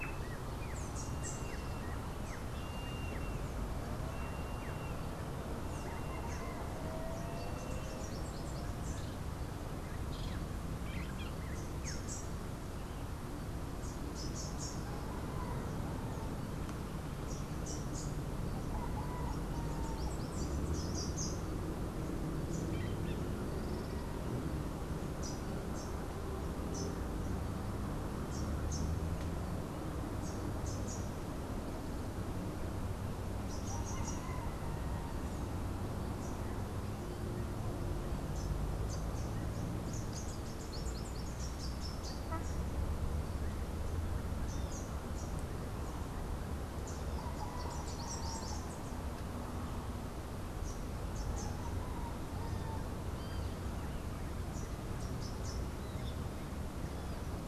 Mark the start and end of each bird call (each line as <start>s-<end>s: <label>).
0.0s-6.8s: Rufous-naped Wren (Campylorhynchus rufinucha)
0.1s-8.2s: Yellow-headed Caracara (Milvago chimachima)
5.6s-12.4s: Rufous-capped Warbler (Basileuterus rufifrons)
14.0s-18.2s: Rufous-capped Warbler (Basileuterus rufifrons)
19.7s-21.4s: Rufous-capped Warbler (Basileuterus rufifrons)
22.6s-23.2s: Crimson-fronted Parakeet (Psittacara finschi)
25.1s-28.8s: Rufous-capped Warbler (Basileuterus rufifrons)
33.3s-34.5s: Rufous-capped Warbler (Basileuterus rufifrons)
38.8s-42.6s: Rufous-capped Warbler (Basileuterus rufifrons)
44.4s-45.4s: Rufous-capped Warbler (Basileuterus rufifrons)
46.8s-49.0s: Rufous-capped Warbler (Basileuterus rufifrons)
51.0s-51.9s: Rufous-capped Warbler (Basileuterus rufifrons)
54.9s-55.8s: Rufous-capped Warbler (Basileuterus rufifrons)